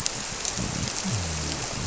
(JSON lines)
{"label": "biophony", "recorder": "SoundTrap 300"}